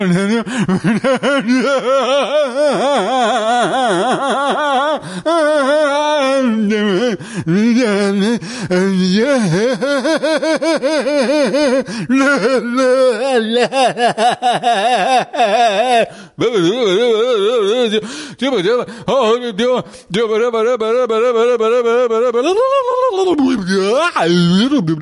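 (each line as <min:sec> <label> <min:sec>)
0:00.1 A man laughs strangely and makes weird sounds. 0:25.0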